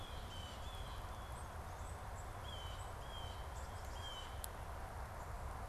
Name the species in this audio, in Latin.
Cyanocitta cristata, Poecile atricapillus